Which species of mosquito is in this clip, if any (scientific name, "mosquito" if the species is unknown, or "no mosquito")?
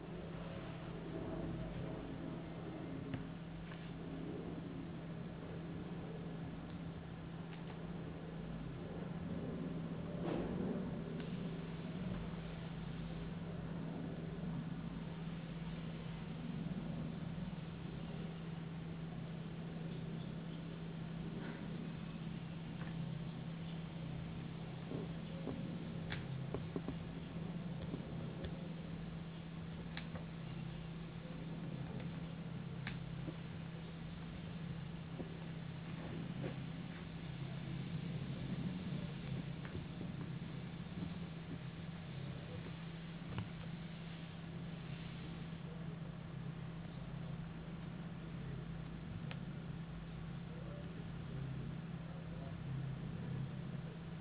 no mosquito